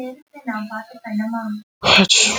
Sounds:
Sneeze